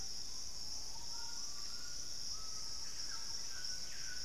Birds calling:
White-throated Toucan (Ramphastos tucanus), Screaming Piha (Lipaugus vociferans)

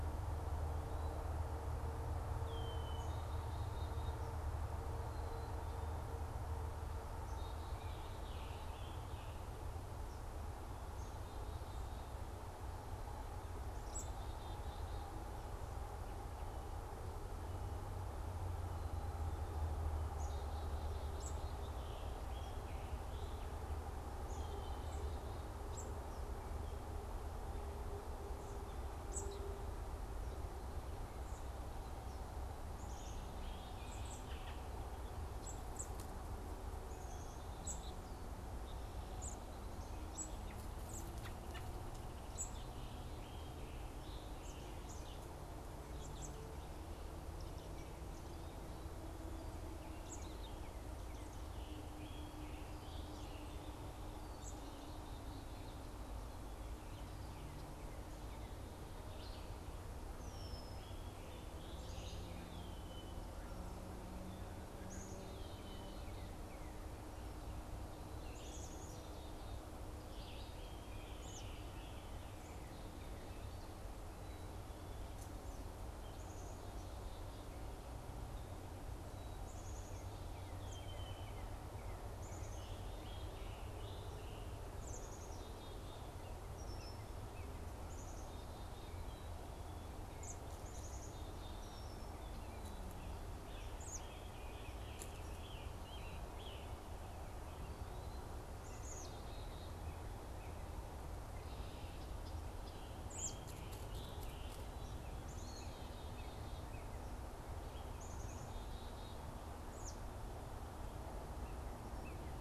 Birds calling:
Black-capped Chickadee (Poecile atricapillus), Northern Cardinal (Cardinalis cardinalis), Red-winged Blackbird (Agelaius phoeniceus), American Robin (Turdus migratorius), Eastern Wood-Pewee (Contopus virens), Scarlet Tanager (Piranga olivacea)

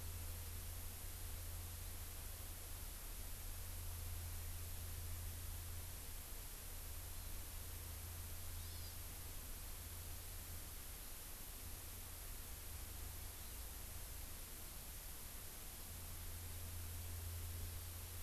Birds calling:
Hawaii Amakihi (Chlorodrepanis virens)

